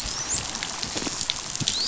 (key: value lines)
label: biophony, dolphin
recorder: SoundTrap 500